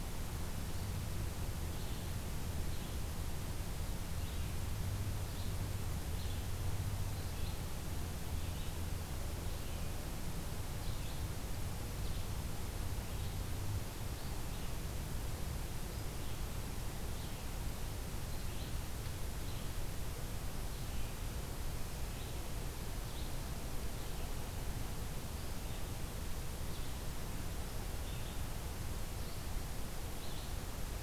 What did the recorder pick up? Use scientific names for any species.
Vireo olivaceus